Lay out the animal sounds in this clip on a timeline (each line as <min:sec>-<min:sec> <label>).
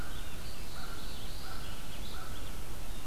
0:00.0-0:03.1 American Crow (Corvus brachyrhynchos)
0:00.0-0:03.1 Red-eyed Vireo (Vireo olivaceus)
0:00.2-0:01.6 Black-throated Blue Warbler (Setophaga caerulescens)